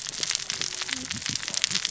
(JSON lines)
{"label": "biophony, cascading saw", "recorder": "SoundTrap 600 or HydroMoth"}